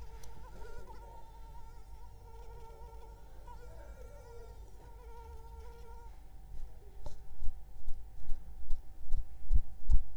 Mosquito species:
Anopheles arabiensis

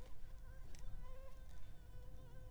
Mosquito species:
Anopheles arabiensis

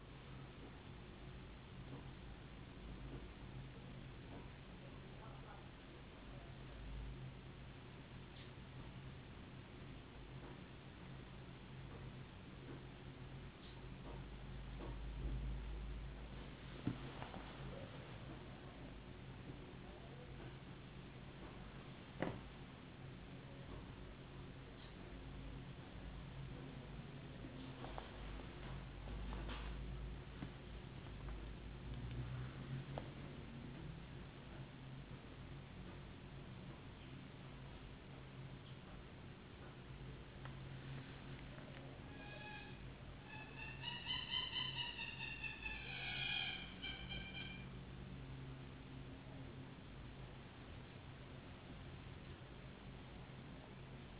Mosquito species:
no mosquito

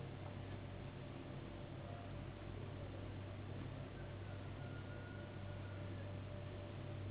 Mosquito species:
Anopheles gambiae s.s.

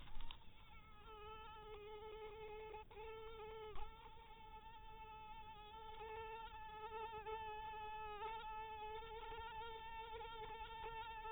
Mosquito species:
mosquito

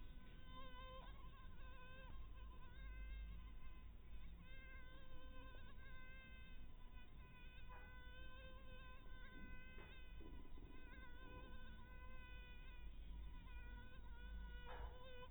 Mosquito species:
mosquito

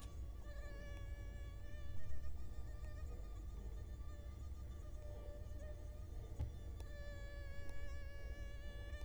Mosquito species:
Culex quinquefasciatus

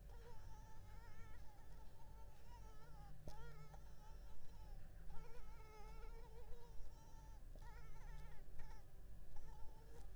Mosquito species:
Culex pipiens complex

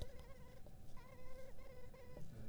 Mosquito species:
Culex pipiens complex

